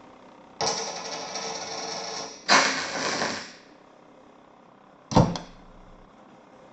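An unchanging background noise persists. At the start, a coin drops. After that, about 2 seconds in, crackling is audible. Finally, about 5 seconds in, you can hear the sound of a door.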